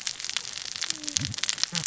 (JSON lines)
{"label": "biophony, cascading saw", "recorder": "SoundTrap 600 or HydroMoth"}